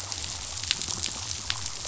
{"label": "biophony", "recorder": "SoundTrap 500"}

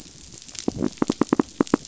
{"label": "biophony", "recorder": "SoundTrap 500"}
{"label": "biophony, knock", "recorder": "SoundTrap 500"}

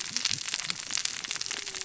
{"label": "biophony, cascading saw", "recorder": "SoundTrap 600 or HydroMoth"}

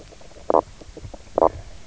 {"label": "biophony, knock croak", "recorder": "SoundTrap 300"}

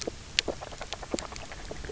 {"label": "biophony, grazing", "recorder": "SoundTrap 300"}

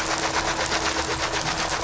{"label": "anthrophony, boat engine", "recorder": "SoundTrap 500"}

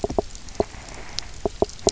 {"label": "biophony, knock", "recorder": "SoundTrap 300"}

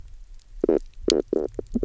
{"label": "biophony, knock croak", "recorder": "SoundTrap 300"}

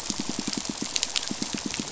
{"label": "biophony, pulse", "recorder": "SoundTrap 500"}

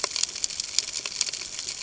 {"label": "ambient", "recorder": "HydroMoth"}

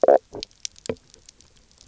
{"label": "biophony, stridulation", "recorder": "SoundTrap 300"}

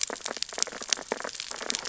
{"label": "biophony, sea urchins (Echinidae)", "recorder": "SoundTrap 600 or HydroMoth"}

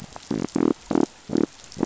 {"label": "biophony", "recorder": "SoundTrap 500"}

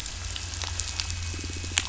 {"label": "biophony", "recorder": "SoundTrap 500"}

